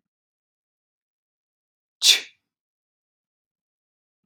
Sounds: Sneeze